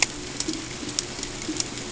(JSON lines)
{"label": "ambient", "recorder": "HydroMoth"}